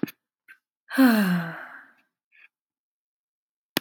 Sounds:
Sigh